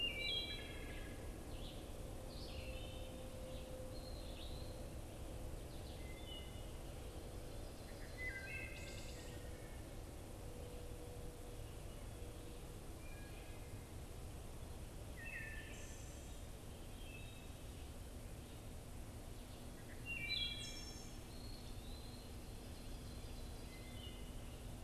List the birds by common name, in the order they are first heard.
Red-eyed Vireo, Wood Thrush, Eastern Wood-Pewee, Ovenbird